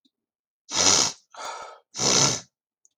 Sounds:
Sniff